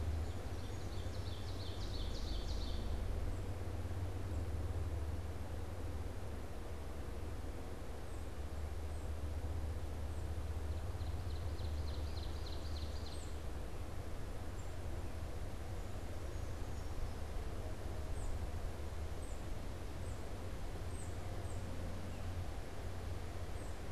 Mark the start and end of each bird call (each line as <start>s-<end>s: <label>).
0.0s-3.0s: Ovenbird (Seiurus aurocapilla)
10.6s-13.4s: Ovenbird (Seiurus aurocapilla)
13.0s-23.9s: Tufted Titmouse (Baeolophus bicolor)